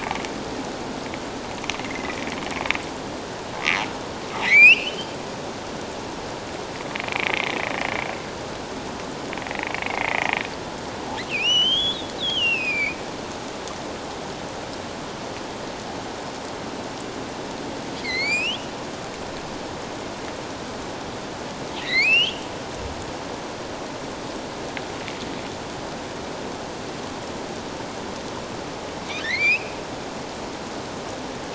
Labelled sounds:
1.8	2.2	humpback whale, 1.9 to 2.2 kHz
4.4	5.2	humpback whale, 1.8 to 3.2 kHz
7.1	7.5	humpback whale, 2.1 to 2.6 kHz
9.8	13.0	humpback whale, 1.3 to 6.5 kHz
18.0	18.7	humpback whale, 1.8 to 6.1 kHz
21.8	22.5	humpback whale, 1.8 to 6.3 kHz
29.2	29.7	humpback whale, 1.6 to 5.3 kHz

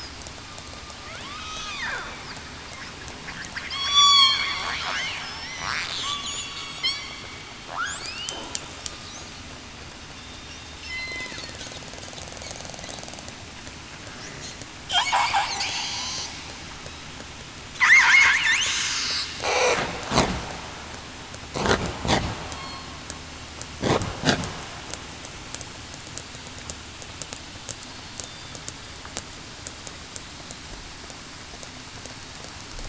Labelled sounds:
1.2	1.8	killer whale, southern resident, 1.0 to 2.6 kHz
3.7	4.5	killer whale, southern resident, 3.2 to 4.6 kHz
5.2	5.5	killer whale, southern resident, 5.1 to 5.7 kHz
6.4	6.8	killer whale, southern resident, 4.4 to 4.5 kHz
8.0	8.5	killer whale, southern resident, 2.3 to 3.1 kHz
10.8	11.2	killer whale, southern resident, 4.0 to 4.2 kHz
19.4	19.7	killer whale, southern resident, 0.47 to 0.58 kHz
22.5	22.9	killer whale, southern resident, 4.2 to 4.4 kHz

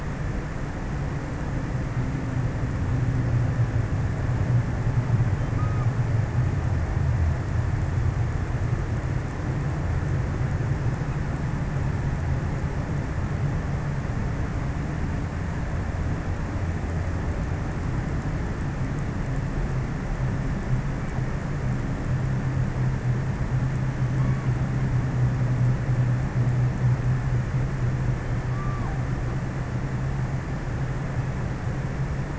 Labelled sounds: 5.3	6.6	killer whale, offshore, 0.97 to 1.6 kHz
22.9	25.0	killer whale, offshore, 0.61 to 1.8 kHz
27.8	29.7	killer whale, offshore, 0.28 to 1.5 kHz

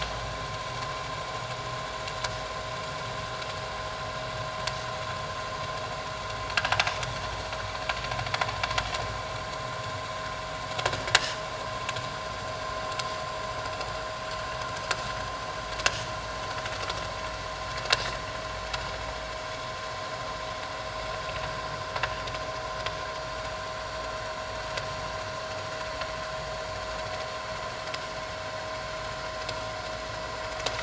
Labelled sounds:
11.1	11.4	vessel noise, 2.8 to 3.2 kHz

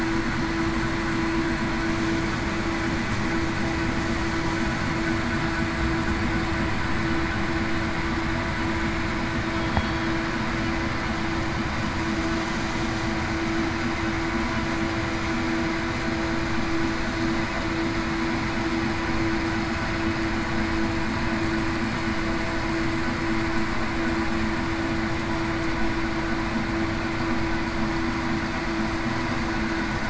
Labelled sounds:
9.7	10.1	killer whale, southern resident, 3.2 to 3.4 kHz

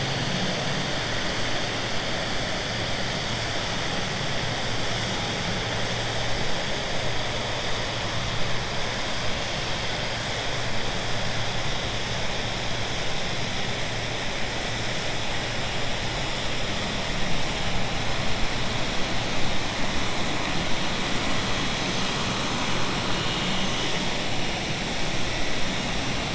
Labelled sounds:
22.9	23.9	vessel noise, 1.1 to 3.8 kHz

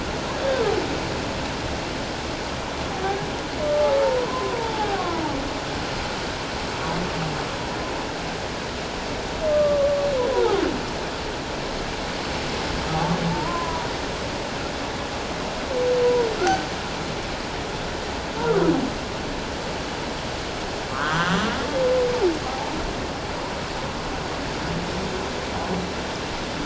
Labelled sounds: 2.9	3.2	humpback whale, 0.78 to 0.84 kHz
3.6	3.9	humpback whale, 1.1 to 1.2 kHz
4.2	5.2	humpback whale, 0.78 to 1.2 kHz
9.5	10.6	humpback whale, 0.78 to 1.2 kHz
13.3	13.9	humpback whale, 0.84 to 1.1 kHz
16.4	16.7	humpback whale, 1.3 to 1.6 kHz
20.9	21.6	humpback whale, 0.97 to 3.4 kHz
22.4	22.7	humpback whale, 0.78 to 0.94 kHz

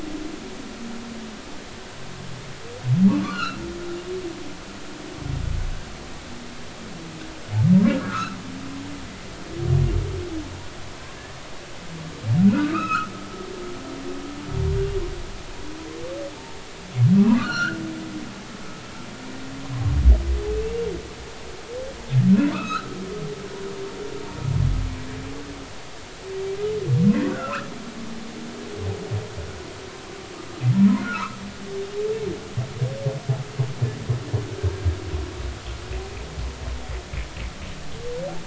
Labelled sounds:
3.2	3.6	humpback whale, 1.1 to 4.4 kHz
7.8	8.4	humpback whale, 0.99 to 1.7 kHz
12.5	13.1	humpback whale, 1.1 to 5.3 kHz
17.4	17.8	humpback whale, 1.1 to 4.4 kHz
20.5	20.7	humpback whale, 2.6 to 2.7 kHz
22.5	22.9	humpback whale, 1.1 to 4.2 kHz
27.3	27.7	humpback whale, 0.96 to 2.8 kHz
31.0	31.4	humpback whale, 0.86 to 2.9 kHz

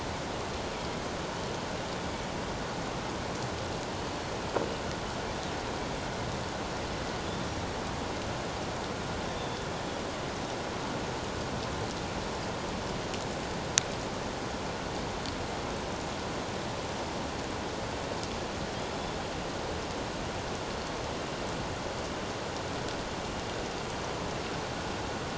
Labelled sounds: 4.1	4.3	killer whale, northern resident, G clan, 4.3 to 4.4 kHz
9.4	9.7	killer whale, northern resident, G clan, 3.3 to 3.7 kHz
18.7	19.1	killer whale, northern resident, G clan, 3.2 to 3.5 kHz

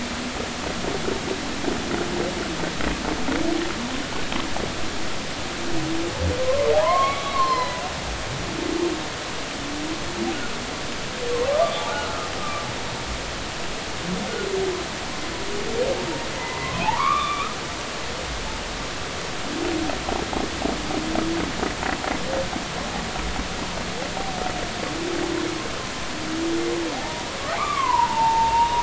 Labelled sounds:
6.5	7.8	humpback whale, 0.80 to 5.3 kHz
11.6	12.1	humpback whale, 0.80 to 1.2 kHz
16.3	17.5	humpback whale, 0.80 to 3.7 kHz
27.0	27.3	humpback whale, 0.80 to 0.99 kHz
27.6	28.8	humpback whale, 0.80 to 2.9 kHz

